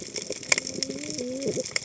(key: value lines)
label: biophony, cascading saw
recorder: HydroMoth